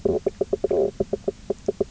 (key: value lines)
label: biophony, knock croak
recorder: SoundTrap 300